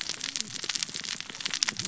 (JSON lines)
{"label": "biophony, cascading saw", "recorder": "SoundTrap 600 or HydroMoth"}